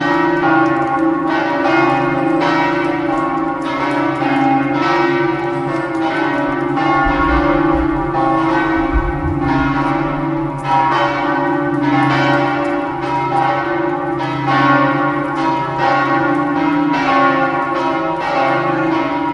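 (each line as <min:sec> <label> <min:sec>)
0:00.0 A bell rings continuously with a repeated high-low tone. 0:19.3
0:00.0 Rain creating an ambient background sound. 0:19.3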